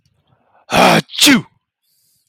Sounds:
Sneeze